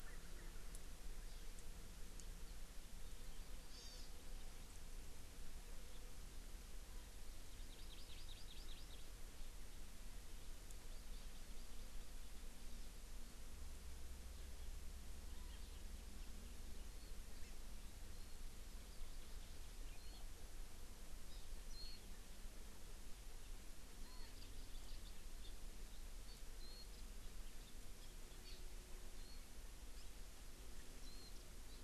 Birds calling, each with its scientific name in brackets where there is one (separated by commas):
Warbling White-eye (Zosterops japonicus), Hawaii Amakihi (Chlorodrepanis virens), House Finch (Haemorhous mexicanus), Chinese Hwamei (Garrulax canorus)